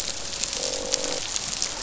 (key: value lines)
label: biophony, croak
recorder: SoundTrap 500